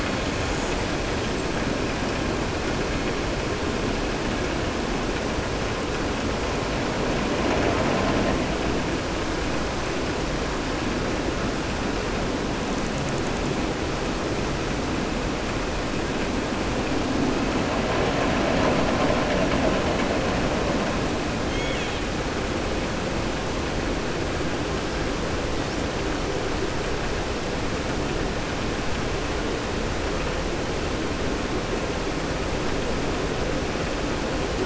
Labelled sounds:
21.4	22.0	killer whale, southern resident, 2.1 to 3.6 kHz

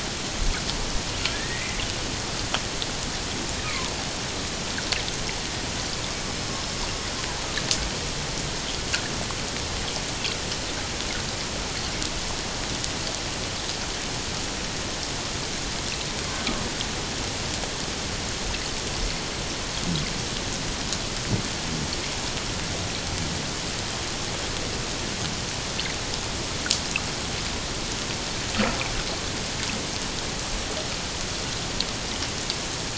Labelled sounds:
1.3	1.8	killer whale, Bigg's (transient), 1.6 to 2.2 kHz
6.1	6.5	killer whale, Bigg's (transient), 5.2 to 5.3 kHz

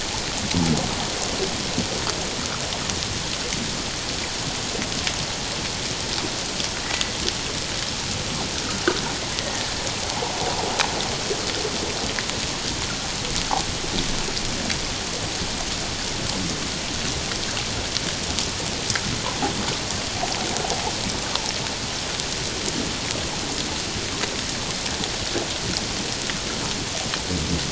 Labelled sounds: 6.8	7.1	killer whale, Bigg's (transient), 1.8 to 2.0 kHz
21.2	21.5	killer whale, Bigg's (transient), 0.84 to 1.3 kHz

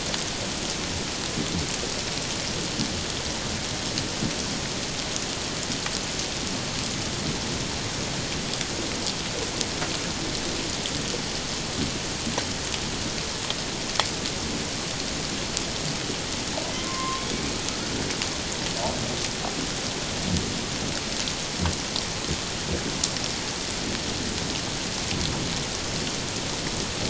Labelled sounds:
16.7	17.2	humpback whale, 0.97 to 1.2 kHz

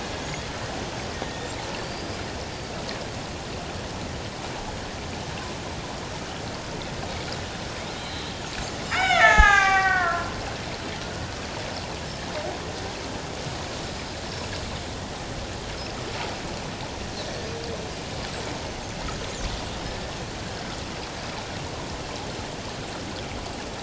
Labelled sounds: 1.2	2.2	killer whale, Bigg's (transient), 1.8 to 5.1 kHz
8.0	8.3	killer whale, Bigg's (transient), 3.7 to 4.2 kHz
8.8	10.4	killer whale, Bigg's (transient), 0.78 to 7.1 kHz

